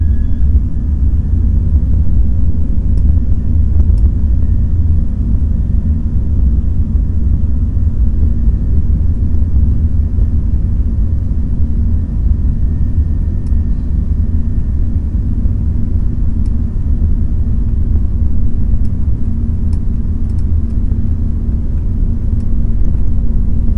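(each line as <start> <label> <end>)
0.0 A steady low hum of an airplane taxiing on the runway before takeoff. 23.8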